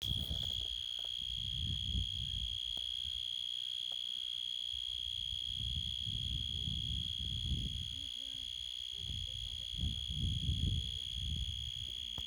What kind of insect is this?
orthopteran